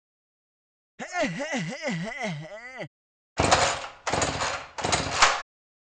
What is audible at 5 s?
engine